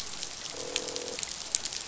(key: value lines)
label: biophony, croak
recorder: SoundTrap 500